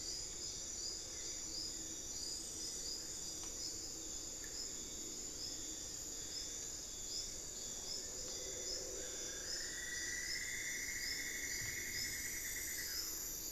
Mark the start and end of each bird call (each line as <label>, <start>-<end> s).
Long-billed Woodcreeper (Nasica longirostris), 5.6-9.2 s
Cinnamon-throated Woodcreeper (Dendrexetastes rufigula), 8.9-13.5 s